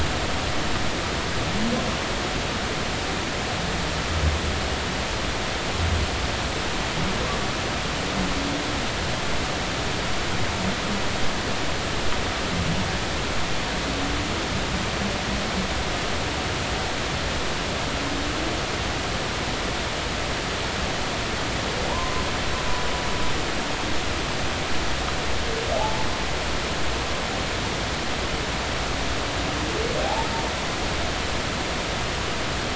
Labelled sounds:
21.9	22.2	humpback whale, 0.86 to 1.1 kHz
25.8	26.1	humpback whale, 0.80 to 0.93 kHz
30.0	30.3	humpback whale, 0.80 to 0.96 kHz

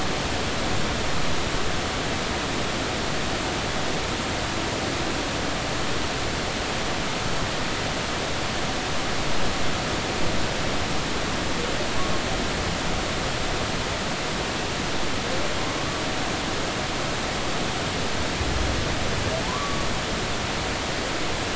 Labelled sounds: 19.4	19.9	humpback whale, 0.83 to 1.3 kHz

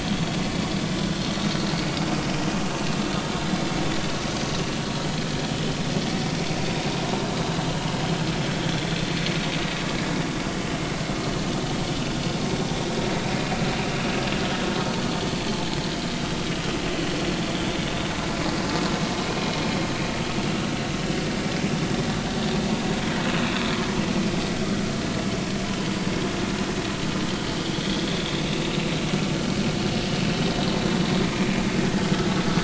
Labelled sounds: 21.7	22.1	vessel noise, 3.5 to 3.7 kHz
28.1	28.3	vessel noise, 3.4 to 3.7 kHz

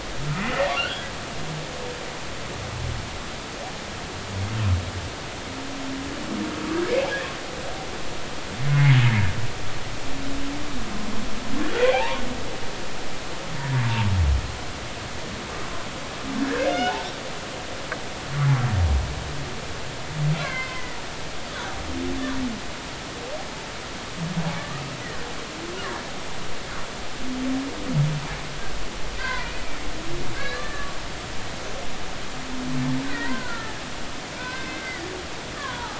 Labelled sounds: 6.7	7.0	humpback whale, 1.5 to 1.8 kHz
8.7	9.0	humpback whale, 2.0 to 2.3 kHz
11.9	12.2	humpback whale, 0.80 to 1.2 kHz
16.4	17.1	humpback whale, 0.80 to 3.0 kHz
20.4	21.0	humpback whale, 0.96 to 2.3 kHz
24.6	24.9	humpback whale, 1.1 to 1.3 kHz
29.2	29.5	humpback whale, 0.90 to 2.1 kHz
30.3	31.0	humpback whale, 1.1 to 4.2 kHz
33.0	33.8	humpback whale, 0.90 to 2.1 kHz
34.5	35.0	humpback whale, 1.9 to 2.2 kHz
35.4	35.9	humpback whale, 0.80 to 1.9 kHz

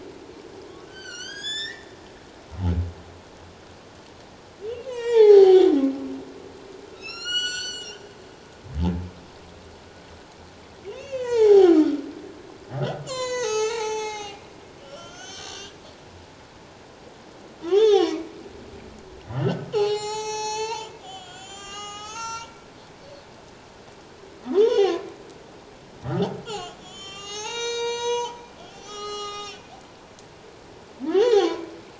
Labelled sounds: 0.9	1.9	humpback whale, 1.3 to 7.7 kHz
4.8	5.7	humpback whale, 0.78 to 8.0 kHz
6.9	8.0	humpback whale, 1.2 to 8.0 kHz
11.0	11.9	humpback whale, 0.78 to 7.3 kHz
12.7	14.4	humpback whale, 0.78 to 8.0 kHz
14.8	15.8	humpback whale, 1.1 to 6.7 kHz
17.6	18.2	humpback whale, 0.78 to 6.7 kHz
19.3	22.6	humpback whale, 0.78 to 7.9 kHz
24.5	25.1	humpback whale, 0.78 to 6.6 kHz
26.4	29.6	humpback whale, 0.78 to 8.0 kHz
31.1	31.7	humpback whale, 0.78 to 4.5 kHz

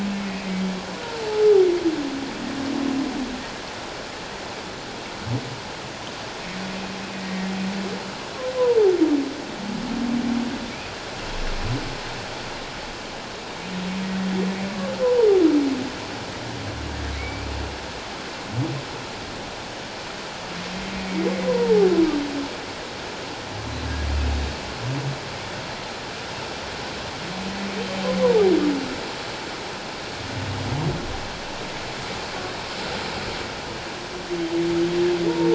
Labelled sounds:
0.1	0.5	humpback whale, 1.9 to 2.2 kHz
7.1	7.5	humpback whale, 1.8 to 1.9 kHz
15.0	15.3	humpback whale, 0.88 to 1.1 kHz
17.2	17.5	humpback whale, 2.1 to 2.6 kHz
21.5	21.9	humpback whale, 0.78 to 1.1 kHz
28.2	28.5	humpback whale, 0.78 to 1.1 kHz

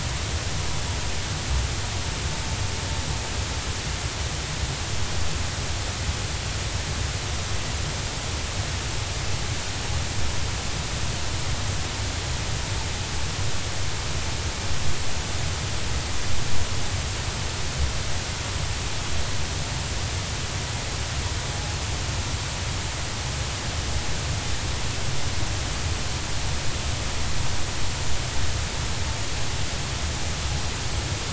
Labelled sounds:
21.5	21.8	vessel noise, 0.80 to 0.90 kHz

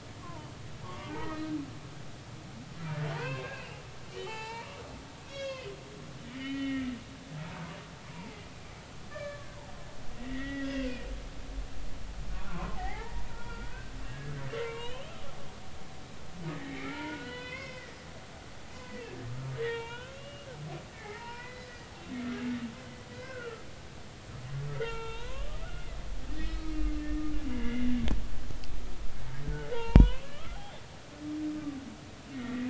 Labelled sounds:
0.2	1.5	humpback whale, 0.86 to 2.0 kHz
3.1	4.7	humpback whale, 0.80 to 5.1 kHz
5.3	6.9	humpback whale, 0.99 to 6.8 kHz
8.1	9.5	humpback whale, 0.80 to 1.9 kHz
10.2	10.9	humpback whale, 1.8 to 3.4 kHz
12.5	15.3	humpback whale, 0.80 to 3.6 kHz
16.5	18.0	humpback whale, 0.86 to 4.1 kHz
19.6	20.5	humpback whale, 0.86 to 4.0 kHz
20.9	21.7	humpback whale, 0.80 to 5.3 kHz
22.3	23.7	humpback whale, 1.2 to 2.6 kHz
24.7	26.0	humpback whale, 0.86 to 4.2 kHz
26.4	26.7	humpback whale, 1.2 to 4.2 kHz
27.0	28.0	humpback whale, 1.7 to 3.0 kHz
29.7	30.6	humpback whale, 0.83 to 3.5 kHz
32.3	32.6	humpback whale, 1.8 to 2.0 kHz

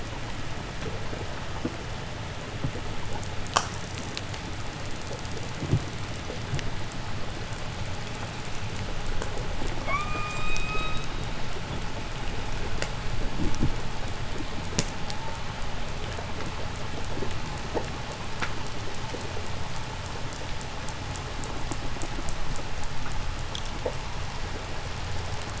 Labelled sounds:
9.7	11.2	killer whale, call S16, 0.91 to 8.0 kHz

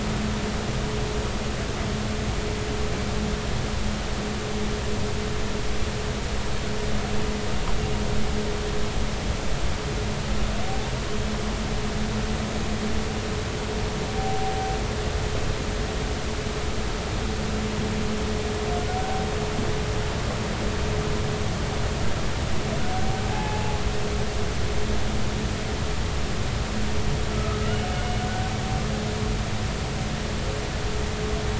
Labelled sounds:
14.2	14.5	humpback whale, 0.80 to 0.83 kHz
23.3	23.8	humpback whale, 0.80 to 2.7 kHz
27.3	28.2	humpback whale, 1.2 to 3.0 kHz

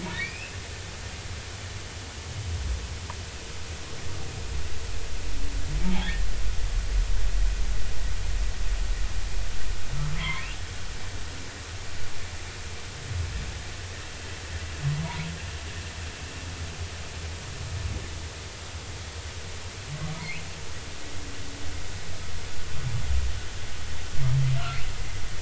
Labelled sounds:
0.0	0.5	humpback whale, 2.1 to 5.2 kHz
5.8	6.3	humpback whale, 0.80 to 3.5 kHz
10.2	10.5	humpback whale, 0.90 to 2.4 kHz
20.2	20.4	humpback whale, 2.0 to 2.7 kHz

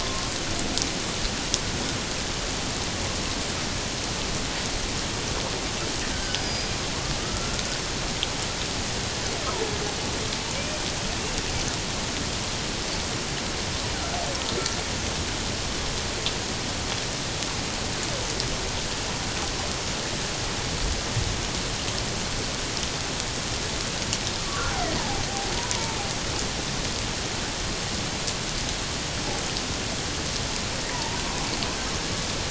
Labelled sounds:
0.0	0.3	killer whale, 1.0 to 1.1 kHz
6.1	6.7	killer whale, Bigg's (transient), 1.4 to 5.1 kHz
7.2	7.6	killer whale, Bigg's (transient), 1.2 to 1.5 kHz
10.5	10.8	killer whale, Bigg's (transient), 2.2 to 2.5 kHz
24.4	25.2	killer whale, Bigg's (transient), 0.78 to 1.2 kHz
25.6	26.0	killer whale, Bigg's (transient), 0.84 to 1.0 kHz
30.9	31.2	killer whale, Bigg's (transient), 0.84 to 1.1 kHz

